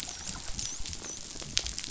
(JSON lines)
{"label": "biophony, dolphin", "recorder": "SoundTrap 500"}